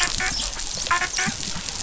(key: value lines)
label: biophony, dolphin
recorder: SoundTrap 500